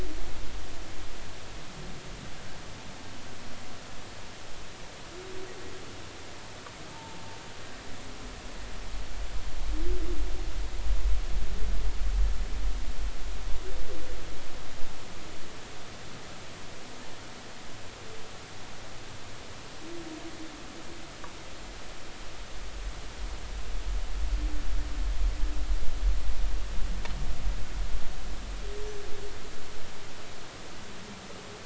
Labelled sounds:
6.9	7.2	humpback whale, 0.83 to 0.96 kHz

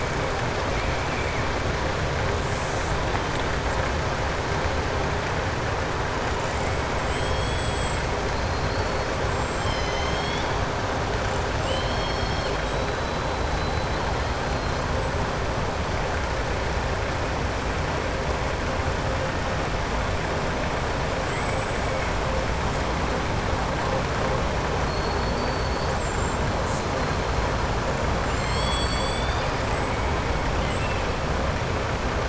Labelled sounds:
6.3	8.0	killer whale, southern resident, 2.3 to 8.0 kHz
11.5	13.2	killer whale, southern resident, 2.8 to 8.0 kHz
21.2	22.0	killer whale, southern resident, 6.9 to 8.0 kHz
25.8	26.4	killer whale, southern resident, 6.6 to 8.0 kHz
28.2	29.5	killer whale, southern resident, 2.1 to 8.0 kHz
30.5	31.0	killer whale, southern resident, 2.0 to 3.2 kHz

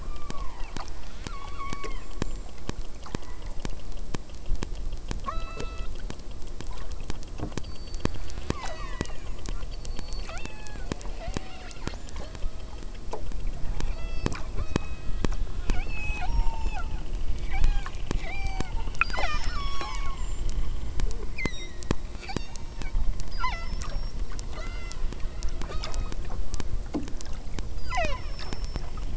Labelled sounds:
0.0	3.8	killer whale, southern Alaska resident, 0.46 to 8.0 kHz
5.2	6.0	killer whale, southern Alaska resident, 0.34 to 6.5 kHz
7.6	9.5	killer whale, southern Alaska resident, 0.34 to 8.0 kHz
9.8	12.9	killer whale, southern Alaska resident, 0.19 to 8.0 kHz
13.7	15.4	killer whale, southern Alaska resident, 0.19 to 8.0 kHz
15.7	16.9	killer whale, southern Alaska resident, 0.50 to 8.0 kHz
17.5	17.9	killer whale, southern Alaska resident, 0.65 to 8.0 kHz
18.2	18.7	killer whale, southern Alaska resident, 0.46 to 8.0 kHz
19.0	20.5	killer whale, southern Alaska resident, 0.25 to 8.0 kHz
21.4	23.0	killer whale, southern Alaska resident, 0.50 to 8.0 kHz
23.3	24.2	killer whale, southern Alaska resident, 0.44 to 8.0 kHz
24.6	25.1	killer whale, southern Alaska resident, 0.48 to 8.0 kHz
25.7	26.2	killer whale, southern Alaska resident, 0.69 to 5.3 kHz
27.8	28.8	killer whale, southern Alaska resident, 0.27 to 8.0 kHz

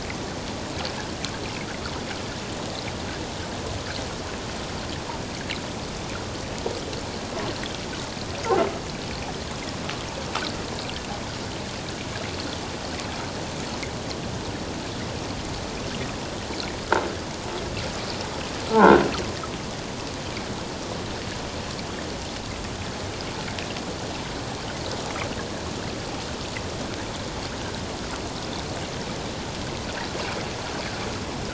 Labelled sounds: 18.7	19.0	croaking sound likely from a nearby submerged object, 1.3 to 1.7 kHz

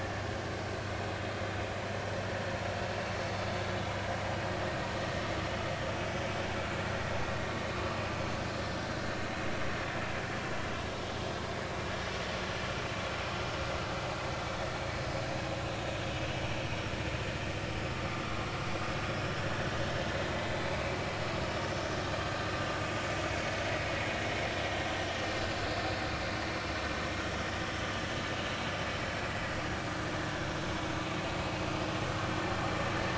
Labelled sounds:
18.2	18.5	vessel noise, 1.0 to 1.3 kHz
19.0	19.3	vessel noise, 5.1 to 5.5 kHz

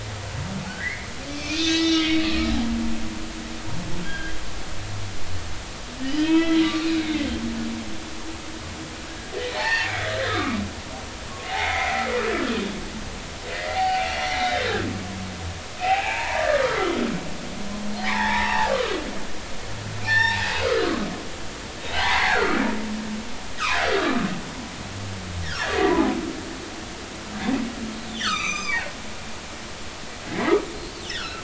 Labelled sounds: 0.7	2.2	humpback whale, 1.4 to 6.3 kHz
4.0	4.4	humpback whale, 1.5 to 3.3 kHz
6.0	7.3	humpback whale, 1.2 to 4.1 kHz
9.6	10.6	humpback whale, 0.80 to 4.7 kHz
11.5	12.1	humpback whale, 0.80 to 2.3 kHz
13.5	14.6	humpback whale, 0.80 to 4.2 kHz
15.8	17.1	humpback whale, 0.80 to 3.4 kHz
18.0	18.8	humpback whale, 0.80 to 3.9 kHz
20.0	20.9	humpback whale, 0.80 to 5.6 kHz
21.9	22.6	humpback whale, 0.80 to 4.4 kHz
24.0	24.2	humpback whale, 1.1 to 1.3 kHz
28.2	28.9	humpback whale, 0.80 to 6.4 kHz
31.1	31.4	humpback whale, 1.3 to 5.5 kHz

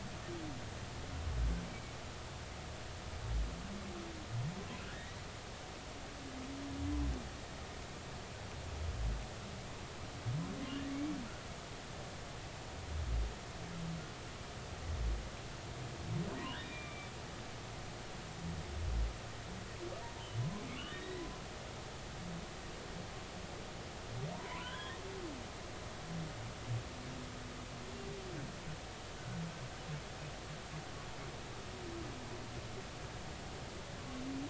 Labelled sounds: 1.7	1.9	humpback whale, 2.2 to 2.4 kHz
4.8	5.2	humpback whale, 1.3 to 2.0 kHz
16.5	17.1	humpback whale, 1.4 to 3.8 kHz
20.8	21.3	humpback whale, 1.6 to 4.0 kHz
24.3	25.0	humpback whale, 0.86 to 3.5 kHz

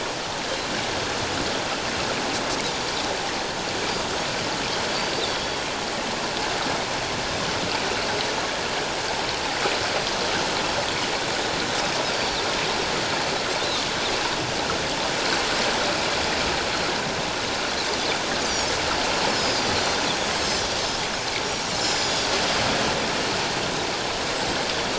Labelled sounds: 4.9	5.6	Pacific white-sided dolphin, 3.2 to 4.7 kHz
12.1	12.4	Pacific white-sided dolphin, 4.4 to 4.7 kHz
19.3	20.8	Pacific white-sided dolphin, 5.0 to 7.7 kHz
21.4	22.3	Pacific white-sided dolphin, 3.4 to 7.3 kHz

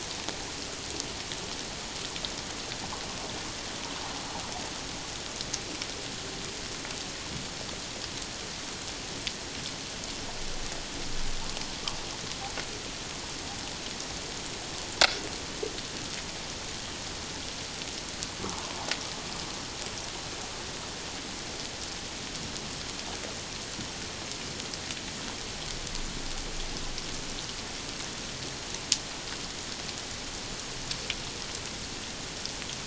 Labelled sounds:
18.4	18.7	humpback whale, 0.78 to 1.4 kHz

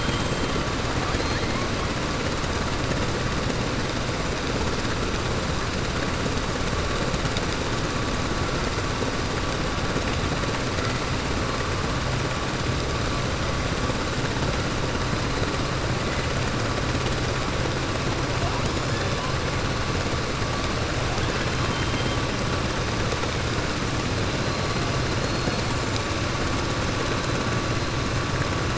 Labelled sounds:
25.1	25.7	killer whale, 4.2 to 4.8 kHz

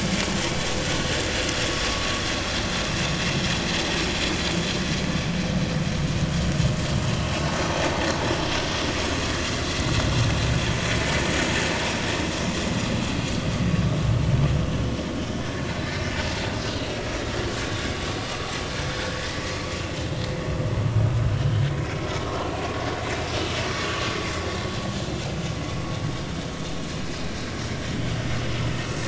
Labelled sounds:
10.6	10.8	vessel noise, 6.3 to 6.5 kHz
21.3	21.6	vessel noise, 2.9 to 3.2 kHz
23.7	24.0	vessel noise, 1.1 to 1.2 kHz

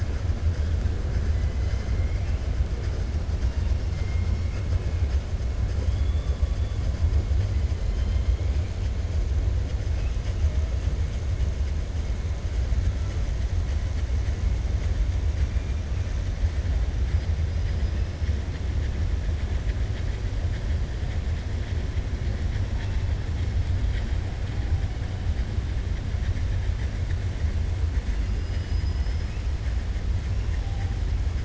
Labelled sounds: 17.5	18.0	killer whale, 4.0 to 5.1 kHz
28.2	29.3	killer whale, 4.2 to 5.3 kHz

